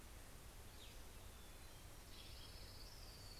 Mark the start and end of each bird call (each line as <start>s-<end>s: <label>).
0.6s-3.4s: Cassin's Vireo (Vireo cassinii)
0.8s-3.4s: Orange-crowned Warbler (Leiothlypis celata)